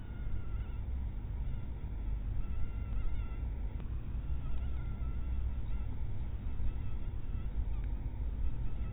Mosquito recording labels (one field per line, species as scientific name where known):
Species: mosquito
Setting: cup